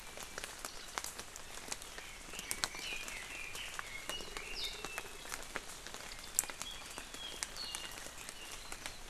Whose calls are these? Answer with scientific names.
Leiothrix lutea, Himatione sanguinea